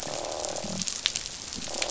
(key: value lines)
label: biophony, croak
recorder: SoundTrap 500

label: biophony
recorder: SoundTrap 500